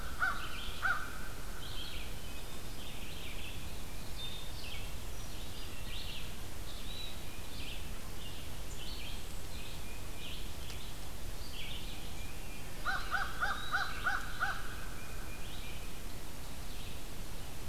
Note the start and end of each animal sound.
[0.00, 1.15] American Crow (Corvus brachyrhynchos)
[0.00, 17.68] Red-eyed Vireo (Vireo olivaceus)
[9.63, 10.66] Tufted Titmouse (Baeolophus bicolor)
[12.49, 14.47] Eastern Wood-Pewee (Contopus virens)
[12.67, 14.80] American Crow (Corvus brachyrhynchos)

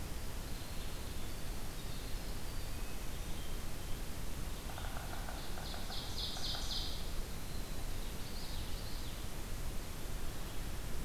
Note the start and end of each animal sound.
[0.00, 3.45] Winter Wren (Troglodytes hiemalis)
[5.12, 7.17] Ovenbird (Seiurus aurocapilla)
[7.86, 9.26] Common Yellowthroat (Geothlypis trichas)

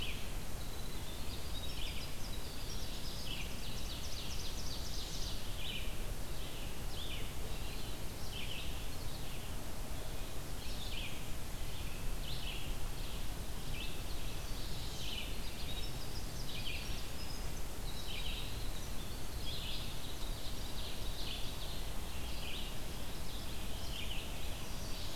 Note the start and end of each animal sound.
[0.00, 17.07] Red-eyed Vireo (Vireo olivaceus)
[0.35, 4.45] Winter Wren (Troglodytes hiemalis)
[2.61, 5.54] Ovenbird (Seiurus aurocapilla)
[14.13, 15.19] Chestnut-sided Warbler (Setophaga pensylvanica)
[14.71, 19.64] Winter Wren (Troglodytes hiemalis)
[17.80, 25.16] Red-eyed Vireo (Vireo olivaceus)
[19.69, 21.96] Ovenbird (Seiurus aurocapilla)
[22.68, 23.78] Mourning Warbler (Geothlypis philadelphia)
[24.22, 25.16] Chestnut-sided Warbler (Setophaga pensylvanica)

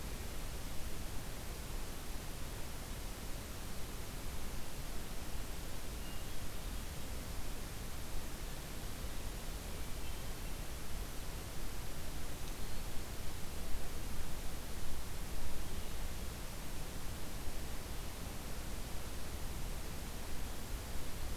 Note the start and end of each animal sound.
[5.83, 6.97] Hermit Thrush (Catharus guttatus)
[9.58, 10.53] Hermit Thrush (Catharus guttatus)

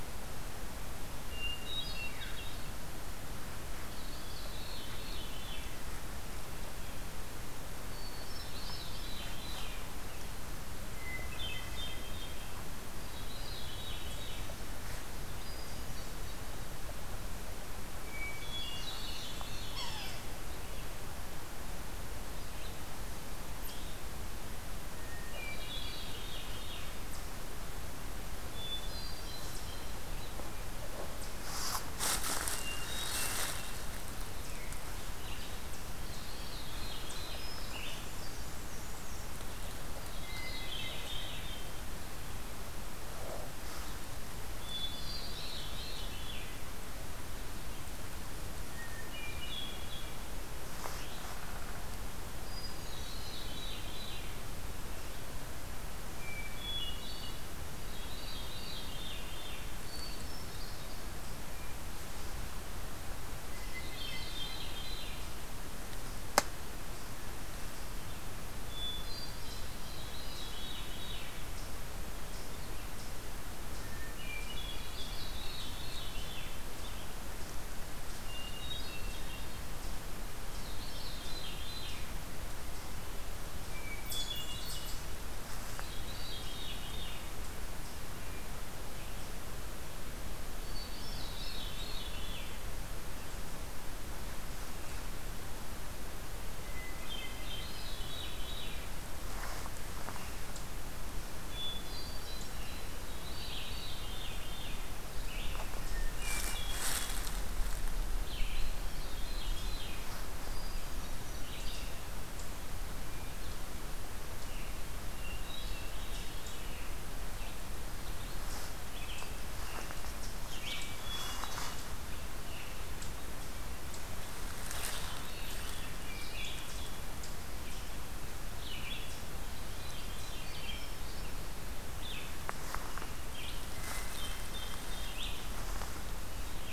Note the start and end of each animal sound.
[1.25, 2.67] Hermit Thrush (Catharus guttatus)
[1.96, 2.50] Veery (Catharus fuscescens)
[3.90, 5.67] Veery (Catharus fuscescens)
[7.69, 9.22] Hermit Thrush (Catharus guttatus)
[8.09, 10.20] Veery (Catharus fuscescens)
[10.92, 12.46] Hermit Thrush (Catharus guttatus)
[12.68, 14.58] Veery (Catharus fuscescens)
[15.13, 16.71] Hermit Thrush (Catharus guttatus)
[17.87, 19.52] Hermit Thrush (Catharus guttatus)
[18.35, 19.97] Blackburnian Warbler (Setophaga fusca)
[19.59, 20.31] Yellow-bellied Sapsucker (Sphyrapicus varius)
[23.49, 24.12] Eastern Chipmunk (Tamias striatus)
[24.71, 26.30] Hermit Thrush (Catharus guttatus)
[25.28, 26.95] Veery (Catharus fuscescens)
[28.38, 30.28] Hermit Thrush (Catharus guttatus)
[32.38, 34.07] Hermit Thrush (Catharus guttatus)
[35.12, 38.06] Red-eyed Vireo (Vireo olivaceus)
[35.94, 37.50] Veery (Catharus fuscescens)
[37.08, 38.74] Hermit Thrush (Catharus guttatus)
[37.63, 39.41] Blackburnian Warbler (Setophaga fusca)
[39.77, 41.59] Veery (Catharus fuscescens)
[40.16, 41.86] Hermit Thrush (Catharus guttatus)
[44.57, 46.51] Veery (Catharus fuscescens)
[44.58, 46.15] Hermit Thrush (Catharus guttatus)
[48.48, 50.27] Hermit Thrush (Catharus guttatus)
[52.38, 53.61] Hermit Thrush (Catharus guttatus)
[52.84, 54.45] Veery (Catharus fuscescens)
[56.00, 57.56] Hermit Thrush (Catharus guttatus)
[57.84, 59.69] Veery (Catharus fuscescens)
[59.56, 61.33] Hermit Thrush (Catharus guttatus)
[63.42, 64.85] Hermit Thrush (Catharus guttatus)
[63.64, 65.18] Veery (Catharus fuscescens)
[68.61, 69.98] Hermit Thrush (Catharus guttatus)
[69.78, 71.37] Veery (Catharus fuscescens)
[73.58, 75.17] Hermit Thrush (Catharus guttatus)
[75.01, 76.57] Veery (Catharus fuscescens)
[78.07, 79.65] Hermit Thrush (Catharus guttatus)
[80.25, 82.33] Veery (Catharus fuscescens)
[83.63, 85.16] Hermit Thrush (Catharus guttatus)
[83.82, 85.17] Eastern Chipmunk (Tamias striatus)
[85.87, 87.42] Veery (Catharus fuscescens)
[90.52, 92.85] Veery (Catharus fuscescens)
[96.43, 97.82] Hermit Thrush (Catharus guttatus)
[97.21, 99.03] Veery (Catharus fuscescens)
[101.36, 103.00] Hermit Thrush (Catharus guttatus)
[103.11, 104.95] Veery (Catharus fuscescens)
[103.37, 108.82] Red-eyed Vireo (Vireo olivaceus)
[105.75, 107.30] Hermit Thrush (Catharus guttatus)
[108.79, 110.18] Veery (Catharus fuscescens)
[110.31, 111.78] Hermit Thrush (Catharus guttatus)
[111.38, 136.72] Red-eyed Vireo (Vireo olivaceus)
[115.04, 116.07] Hermit Thrush (Catharus guttatus)
[120.70, 121.97] Hermit Thrush (Catharus guttatus)
[125.42, 126.89] Hermit Thrush (Catharus guttatus)
[129.49, 131.64] Hermit Thrush (Catharus guttatus)
[133.64, 135.38] Hermit Thrush (Catharus guttatus)

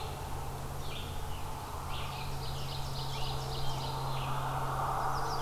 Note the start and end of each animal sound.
[0.00, 5.42] Red-eyed Vireo (Vireo olivaceus)
[1.09, 4.41] Scarlet Tanager (Piranga olivacea)
[1.78, 4.06] Ovenbird (Seiurus aurocapilla)
[4.91, 5.42] Chestnut-sided Warbler (Setophaga pensylvanica)

